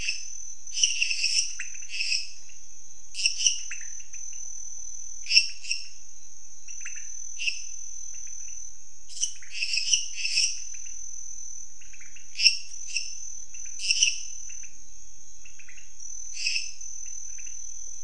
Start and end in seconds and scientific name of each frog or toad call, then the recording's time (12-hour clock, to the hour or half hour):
0.0	18.0	Leptodactylus podicipinus
0.1	3.7	Dendropsophus minutus
5.0	6.1	Dendropsophus minutus
7.4	7.9	Dendropsophus minutus
8.9	10.8	Dendropsophus minutus
12.2	14.4	Dendropsophus minutus
16.2	16.9	Dendropsophus minutus
~10pm